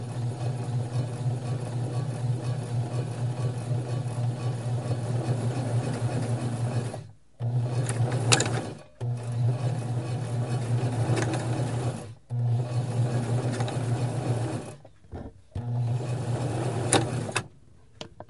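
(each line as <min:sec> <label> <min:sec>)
0:00.0 A sewing machine is running. 0:14.7
0:15.5 A sewing machine is running. 0:17.6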